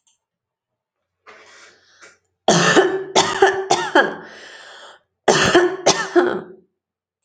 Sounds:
Cough